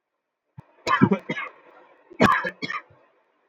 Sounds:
Cough